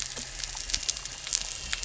{"label": "anthrophony, boat engine", "recorder": "SoundTrap 300"}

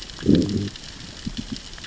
{"label": "biophony, growl", "recorder": "SoundTrap 600 or HydroMoth"}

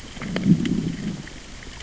{"label": "biophony, growl", "recorder": "SoundTrap 600 or HydroMoth"}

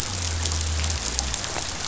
{"label": "biophony", "recorder": "SoundTrap 500"}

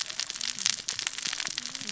{"label": "biophony, cascading saw", "recorder": "SoundTrap 600 or HydroMoth"}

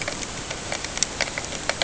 {"label": "ambient", "recorder": "HydroMoth"}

